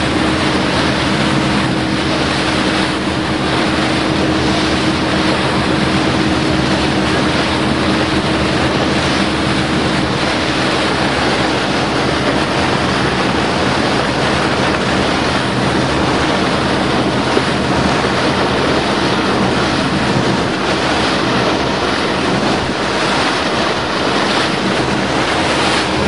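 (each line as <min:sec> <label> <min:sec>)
0:00.0 The motor is running steadily. 0:26.0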